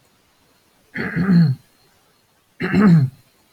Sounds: Throat clearing